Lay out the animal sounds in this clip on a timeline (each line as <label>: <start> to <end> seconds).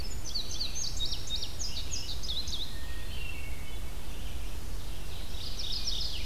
Indigo Bunting (Passerina cyanea): 0.0 to 2.8 seconds
Red-eyed Vireo (Vireo olivaceus): 0.0 to 6.2 seconds
Hermit Thrush (Catharus guttatus): 2.6 to 4.0 seconds
Mourning Warbler (Geothlypis philadelphia): 4.8 to 6.2 seconds